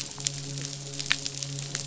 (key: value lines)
label: biophony, midshipman
recorder: SoundTrap 500